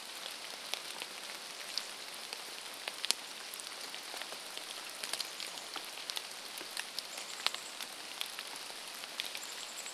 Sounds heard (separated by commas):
rain, Chestnut-backed Chickadee call